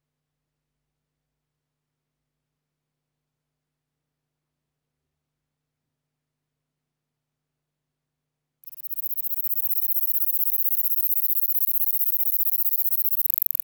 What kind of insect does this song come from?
orthopteran